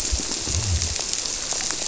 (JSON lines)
{"label": "biophony", "recorder": "SoundTrap 300"}